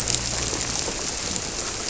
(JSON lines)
{"label": "biophony", "recorder": "SoundTrap 300"}